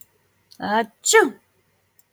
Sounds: Sneeze